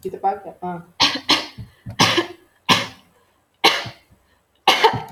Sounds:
Cough